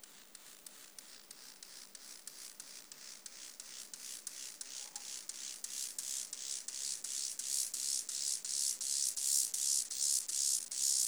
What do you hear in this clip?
Chorthippus mollis, an orthopteran